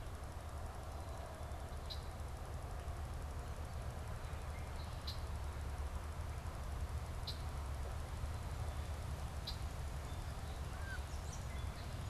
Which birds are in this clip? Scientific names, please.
Agelaius phoeniceus, Melospiza melodia, Aix sponsa, Turdus migratorius